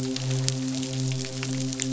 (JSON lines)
{"label": "biophony, midshipman", "recorder": "SoundTrap 500"}